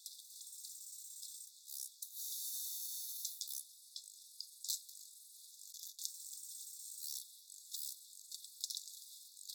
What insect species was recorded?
Arcyptera fusca